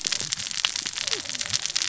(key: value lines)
label: biophony, cascading saw
recorder: SoundTrap 600 or HydroMoth